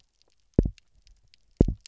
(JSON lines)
{"label": "biophony, double pulse", "recorder": "SoundTrap 300"}